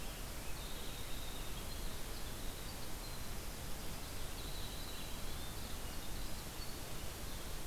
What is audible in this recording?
Winter Wren